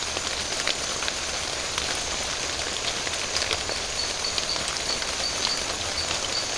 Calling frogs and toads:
marbled tropical bullfrog
3:30am

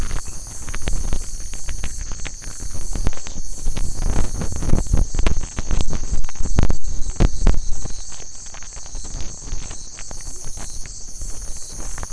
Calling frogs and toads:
none
12:30am

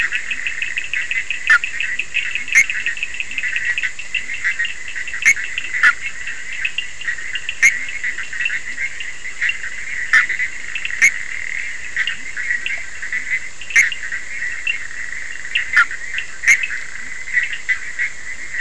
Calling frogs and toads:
Leptodactylus latrans, Bischoff's tree frog, Cochran's lime tree frog
~3am

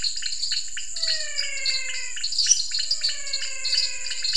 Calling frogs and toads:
dwarf tree frog, pointedbelly frog, menwig frog, lesser tree frog
8pm

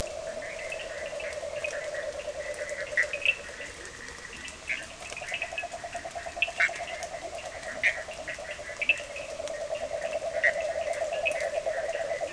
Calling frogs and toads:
Bischoff's tree frog, yellow cururu toad, Cochran's lime tree frog, Leptodactylus latrans
11:30pm

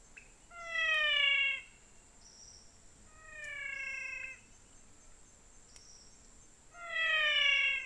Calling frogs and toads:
pointedbelly frog, menwig frog
~6pm

